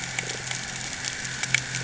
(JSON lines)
{"label": "anthrophony, boat engine", "recorder": "HydroMoth"}